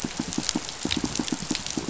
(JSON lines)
{"label": "biophony, pulse", "recorder": "SoundTrap 500"}